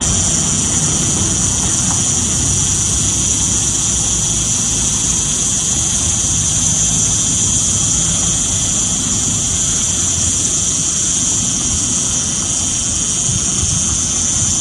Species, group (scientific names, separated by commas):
Cicada barbara, Cicadidae